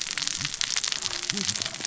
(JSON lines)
{"label": "biophony, cascading saw", "recorder": "SoundTrap 600 or HydroMoth"}